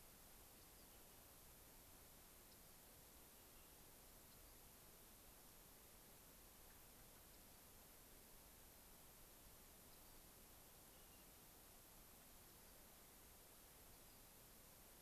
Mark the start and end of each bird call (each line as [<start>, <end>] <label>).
[0.50, 0.90] Rock Wren (Salpinctes obsoletus)
[2.50, 2.80] Rock Wren (Salpinctes obsoletus)
[4.30, 4.50] Rock Wren (Salpinctes obsoletus)
[7.30, 7.60] Rock Wren (Salpinctes obsoletus)
[9.90, 10.20] Rock Wren (Salpinctes obsoletus)
[10.90, 11.20] unidentified bird
[13.90, 14.20] Rock Wren (Salpinctes obsoletus)